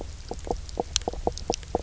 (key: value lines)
label: biophony, knock croak
recorder: SoundTrap 300